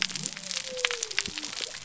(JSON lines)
{"label": "biophony", "recorder": "SoundTrap 300"}